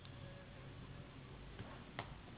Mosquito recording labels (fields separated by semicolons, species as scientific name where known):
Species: Anopheles gambiae s.s.; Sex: female; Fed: unfed; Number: one; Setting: insect culture